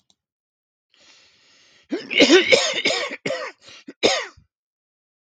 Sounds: Cough